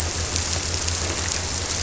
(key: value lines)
label: biophony
recorder: SoundTrap 300